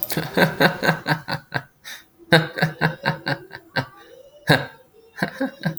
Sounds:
Laughter